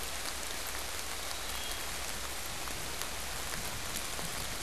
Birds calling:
Wood Thrush (Hylocichla mustelina)

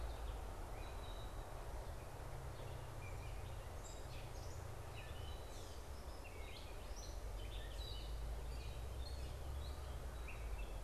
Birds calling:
Gray Catbird (Dumetella carolinensis)

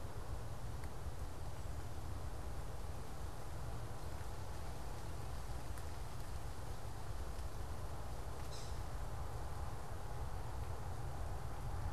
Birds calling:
Yellow-bellied Sapsucker (Sphyrapicus varius)

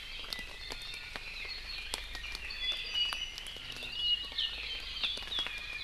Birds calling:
Red-billed Leiothrix (Leiothrix lutea), Apapane (Himatione sanguinea), Iiwi (Drepanis coccinea)

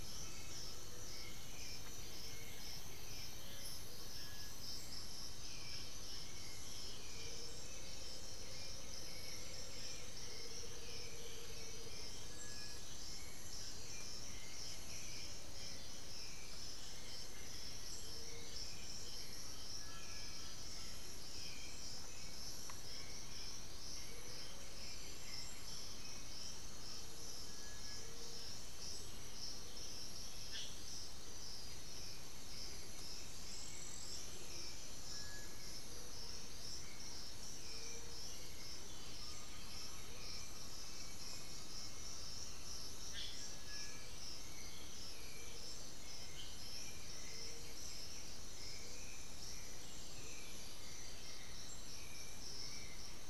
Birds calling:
Great Antshrike (Taraba major), Black-billed Thrush (Turdus ignobilis), Amazonian Motmot (Momotus momota), Undulated Tinamou (Crypturellus undulatus), White-winged Becard (Pachyramphus polychopterus), unidentified bird

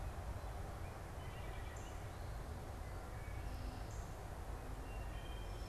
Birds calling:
Wood Thrush (Hylocichla mustelina), Northern Cardinal (Cardinalis cardinalis)

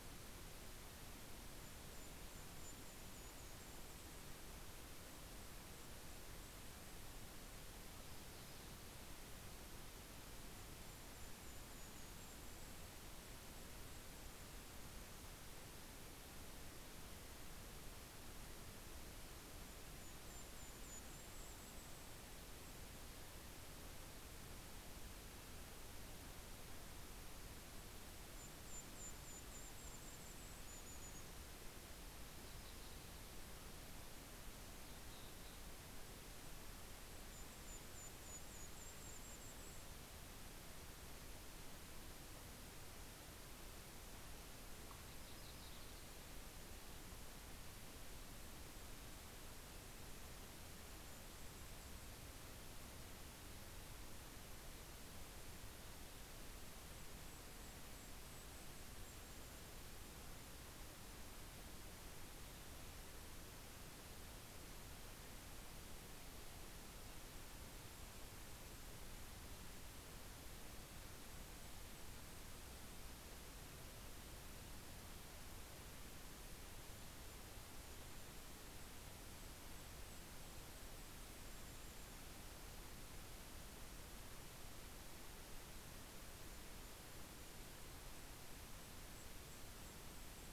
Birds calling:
Yellow-rumped Warbler (Setophaga coronata), Golden-crowned Kinglet (Regulus satrapa)

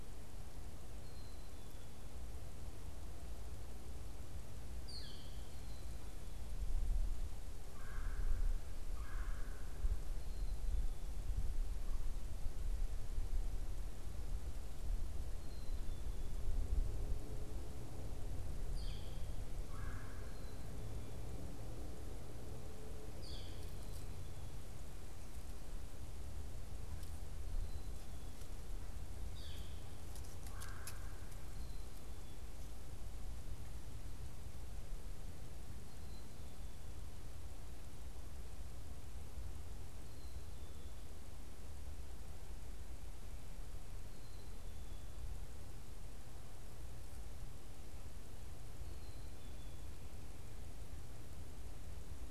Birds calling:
Red-bellied Woodpecker (Melanerpes carolinus), Northern Flicker (Colaptes auratus), Black-capped Chickadee (Poecile atricapillus)

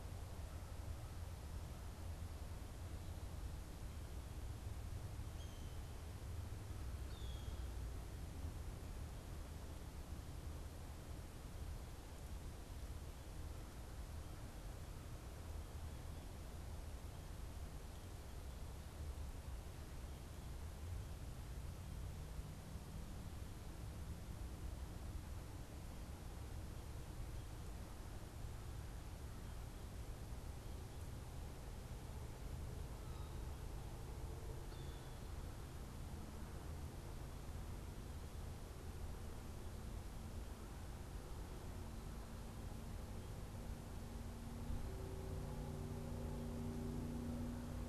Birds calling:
Blue Jay (Cyanocitta cristata)

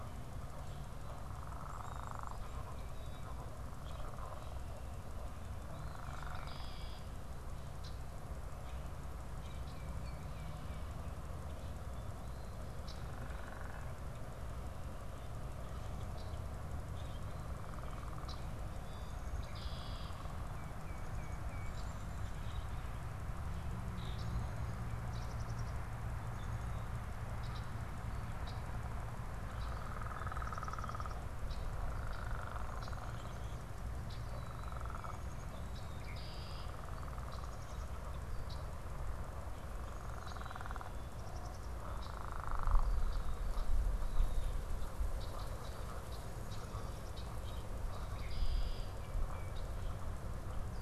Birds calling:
unidentified bird, Red-winged Blackbird (Agelaius phoeniceus), Common Grackle (Quiscalus quiscula), Tufted Titmouse (Baeolophus bicolor)

